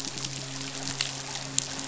{"label": "biophony, midshipman", "recorder": "SoundTrap 500"}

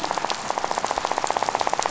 {"label": "biophony, rattle", "recorder": "SoundTrap 500"}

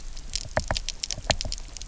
{"label": "biophony, knock", "recorder": "SoundTrap 300"}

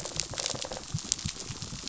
{"label": "biophony", "recorder": "SoundTrap 500"}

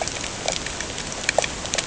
{"label": "ambient", "recorder": "HydroMoth"}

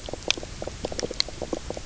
{"label": "biophony, knock croak", "recorder": "SoundTrap 300"}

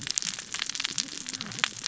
{"label": "biophony, cascading saw", "recorder": "SoundTrap 600 or HydroMoth"}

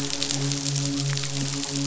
{"label": "biophony, midshipman", "recorder": "SoundTrap 500"}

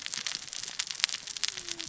{"label": "biophony, cascading saw", "recorder": "SoundTrap 600 or HydroMoth"}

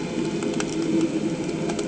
{"label": "anthrophony, boat engine", "recorder": "HydroMoth"}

